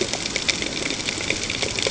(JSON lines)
{"label": "ambient", "recorder": "HydroMoth"}